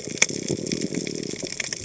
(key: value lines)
label: biophony
recorder: HydroMoth